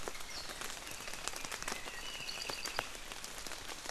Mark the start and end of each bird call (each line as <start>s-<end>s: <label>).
1.8s-3.0s: Apapane (Himatione sanguinea)